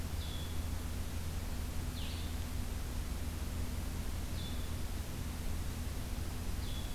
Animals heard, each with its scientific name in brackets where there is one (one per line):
Blue-headed Vireo (Vireo solitarius)